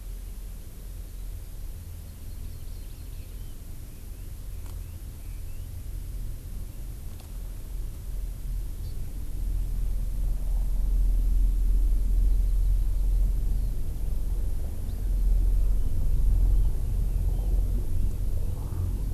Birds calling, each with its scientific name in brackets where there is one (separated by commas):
Hawaii Amakihi (Chlorodrepanis virens), Red-billed Leiothrix (Leiothrix lutea)